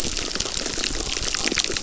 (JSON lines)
{"label": "biophony, crackle", "recorder": "SoundTrap 600"}